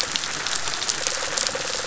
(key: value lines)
label: biophony, rattle response
recorder: SoundTrap 500